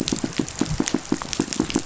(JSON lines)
{"label": "biophony, pulse", "recorder": "SoundTrap 500"}